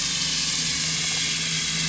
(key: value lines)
label: anthrophony, boat engine
recorder: SoundTrap 500